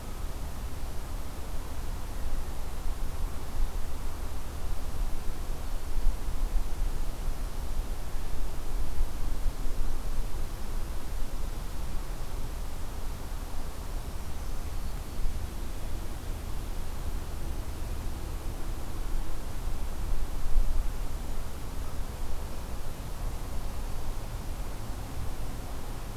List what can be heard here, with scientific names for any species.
Setophaga virens